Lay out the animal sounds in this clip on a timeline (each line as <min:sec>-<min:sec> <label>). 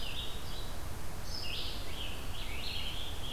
0:00.0-0:03.3 Red-eyed Vireo (Vireo olivaceus)
0:01.5-0:03.3 Scarlet Tanager (Piranga olivacea)